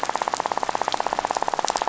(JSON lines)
{"label": "biophony, rattle", "recorder": "SoundTrap 500"}